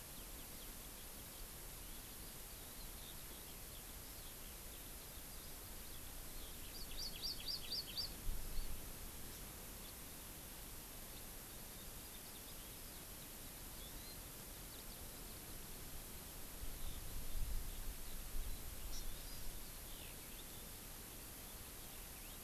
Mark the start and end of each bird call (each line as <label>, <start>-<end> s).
Hawaii Amakihi (Chlorodrepanis virens), 6.5-8.8 s
Hawaii Amakihi (Chlorodrepanis virens), 9.2-9.4 s
Hawaii Amakihi (Chlorodrepanis virens), 13.7-14.2 s
Hawaii Amakihi (Chlorodrepanis virens), 18.8-19.5 s